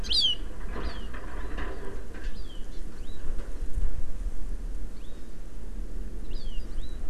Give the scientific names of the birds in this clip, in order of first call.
Chlorodrepanis virens